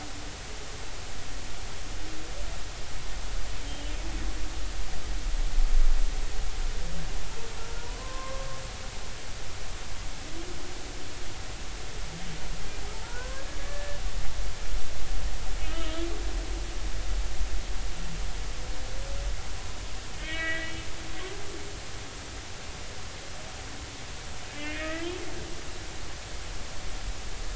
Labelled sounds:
7.8	8.5	humpback whale, 0.93 to 1.1 kHz
12.9	14.0	humpback whale, 0.86 to 1.8 kHz
15.6	16.1	humpback whale, 1.2 to 3.3 kHz
20.2	20.7	humpback whale, 1.5 to 3.4 kHz
24.5	25.1	humpback whale, 1.8 to 2.7 kHz

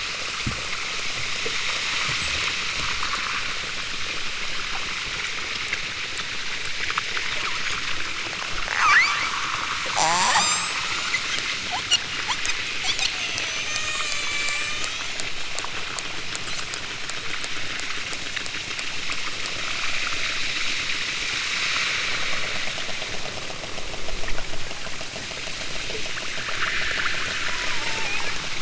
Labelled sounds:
7.4	7.8	killer whale, southern Alaska resident, 3.9 to 8.0 kHz
8.7	9.4	killer whale, southern Alaska resident, 0.64 to 8.0 kHz
9.9	11.2	killer whale, southern Alaska resident, 0.18 to 8.0 kHz
13.2	15.1	killer whale, southern Alaska resident, 0.23 to 8.0 kHz
27.4	28.5	killer whale, southern Alaska resident, 0.41 to 2.9 kHz

